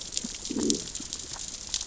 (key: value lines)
label: biophony, growl
recorder: SoundTrap 600 or HydroMoth